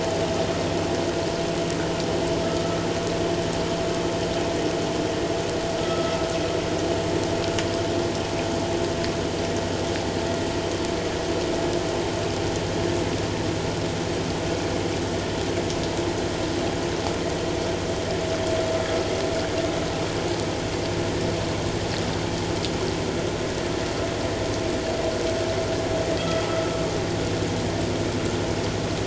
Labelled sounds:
5.8	6.1	vessel noise, 1.2 to 1.4 kHz
26.2	26.5	vessel noise, 3.2 to 3.4 kHz

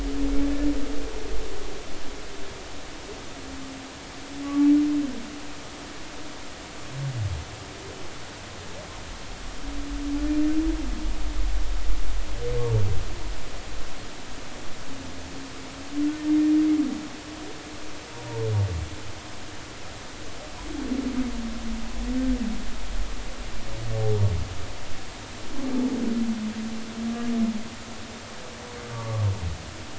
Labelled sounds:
4.4	4.7	humpback whale, 1.1 to 1.2 kHz
28.9	29.2	humpback whale, 0.96 to 1.2 kHz

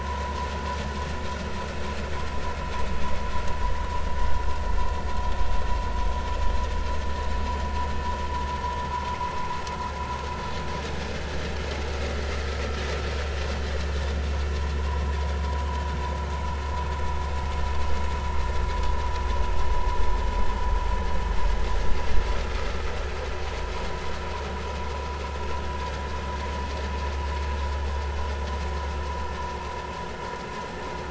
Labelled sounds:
14.9	15.2	vessel noise, 0.93 to 1.1 kHz

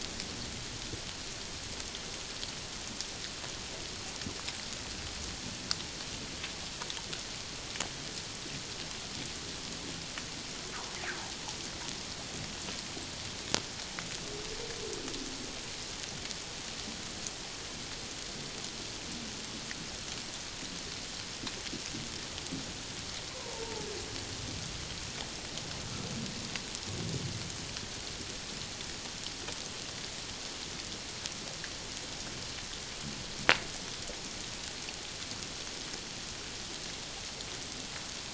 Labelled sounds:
23.3	23.6	humpback whale, 0.84 to 1.1 kHz

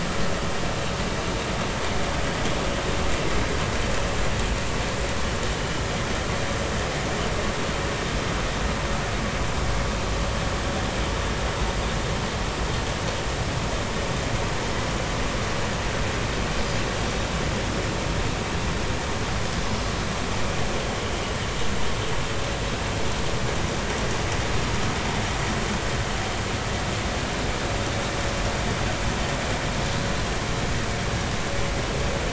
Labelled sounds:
5.6	5.8	vessel noise, 2.9 to 3.0 kHz

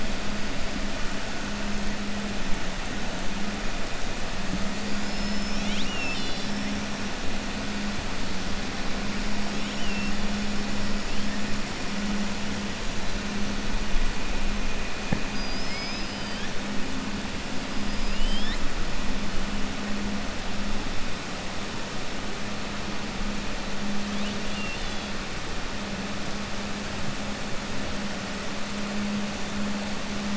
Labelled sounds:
4.9	6.6	killer whale, 2.3 to 6.5 kHz
9.5	10.1	killer whale, 2.7 to 3.8 kHz
17.8	18.6	killer whale, 1.8 to 5.4 kHz
24.2	25.1	killer whale, 2.6 to 4.7 kHz

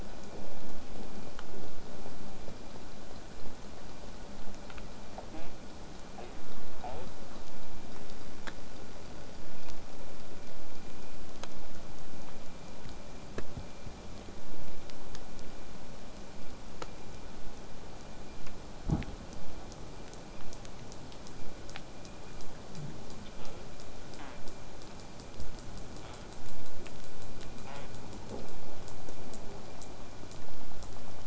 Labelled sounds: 5.3	5.5	killer whale, southern resident, J pod, call S05, 0.08 to 3.6 kHz
6.2	6.3	killer whale, southern resident, J pod, call S05, 0.15 to 3.0 kHz
6.8	7.1	killer whale, southern resident, J pod, call S05, 0.11 to 3.3 kHz
23.4	23.6	killer whale, southern resident, J pod, call S05, 0.15 to 3.4 kHz
24.2	24.4	killer whale, southern resident, J pod, call S05, 0.19 to 3.5 kHz
26.0	26.3	killer whale, southern resident, J pod, call S05, 0.53 to 3.8 kHz
27.7	27.9	killer whale, southern resident, J pod, call S05, 0.45 to 3.7 kHz

